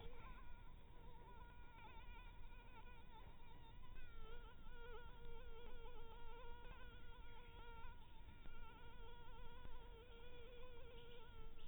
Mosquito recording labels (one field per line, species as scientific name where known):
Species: Anopheles maculatus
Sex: female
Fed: blood-fed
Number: one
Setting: cup